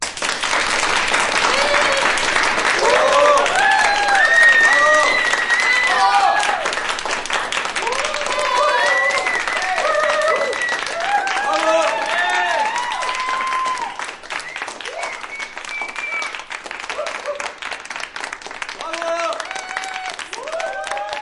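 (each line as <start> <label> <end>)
0.0 Loud, constant clapping indoors with no pattern. 21.2
1.4 A loud, high-pitched cheer indoors. 2.1
2.7 Loud cheering with irregular rhythm and varying pitch. 6.7
7.7 Loud cheering with irregular rhythm and varying pitch. 17.6
18.8 Loud cheering with irregular rhythm and varying pitch. 21.2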